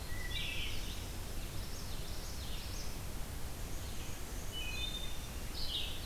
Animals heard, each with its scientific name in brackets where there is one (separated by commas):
Red-eyed Vireo (Vireo olivaceus), Hermit Thrush (Catharus guttatus), Common Yellowthroat (Geothlypis trichas), Wood Thrush (Hylocichla mustelina)